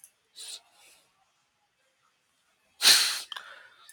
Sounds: Sneeze